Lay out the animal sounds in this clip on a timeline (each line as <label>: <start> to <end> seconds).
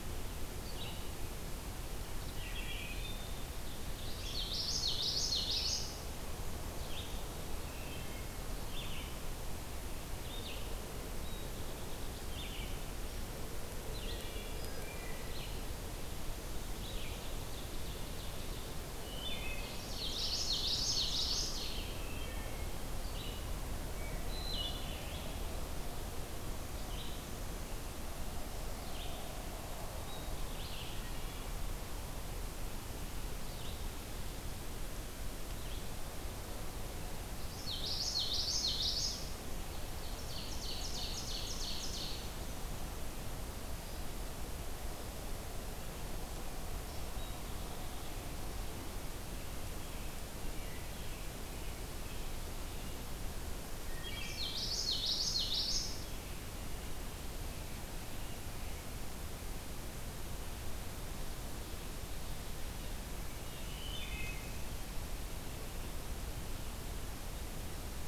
Red-eyed Vireo (Vireo olivaceus): 0.0 to 4.4 seconds
Wood Thrush (Hylocichla mustelina): 2.2 to 3.5 seconds
Common Yellowthroat (Geothlypis trichas): 4.0 to 6.2 seconds
Red-eyed Vireo (Vireo olivaceus): 5.4 to 36.0 seconds
Wood Thrush (Hylocichla mustelina): 7.6 to 8.5 seconds
Song Sparrow (Melospiza melodia): 11.1 to 12.4 seconds
Wood Thrush (Hylocichla mustelina): 13.8 to 15.4 seconds
Ovenbird (Seiurus aurocapilla): 16.6 to 18.9 seconds
Wood Thrush (Hylocichla mustelina): 18.8 to 20.0 seconds
Common Yellowthroat (Geothlypis trichas): 19.6 to 21.9 seconds
Wood Thrush (Hylocichla mustelina): 21.9 to 22.7 seconds
Wood Thrush (Hylocichla mustelina): 24.1 to 25.0 seconds
Wood Thrush (Hylocichla mustelina): 30.7 to 31.6 seconds
Common Yellowthroat (Geothlypis trichas): 37.3 to 39.5 seconds
Ovenbird (Seiurus aurocapilla): 40.0 to 42.4 seconds
American Robin (Turdus migratorius): 49.7 to 53.0 seconds
Wood Thrush (Hylocichla mustelina): 53.7 to 54.6 seconds
Common Yellowthroat (Geothlypis trichas): 54.2 to 56.2 seconds
American Robin (Turdus migratorius): 55.9 to 58.8 seconds
Wood Thrush (Hylocichla mustelina): 63.6 to 64.7 seconds